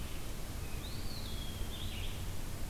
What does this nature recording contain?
Red-eyed Vireo, Eastern Wood-Pewee